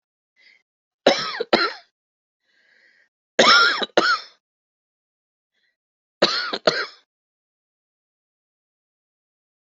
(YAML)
expert_labels:
- quality: good
  cough_type: wet
  dyspnea: false
  wheezing: false
  stridor: false
  choking: false
  congestion: false
  nothing: true
  diagnosis: lower respiratory tract infection
  severity: mild